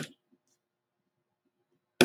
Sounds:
Laughter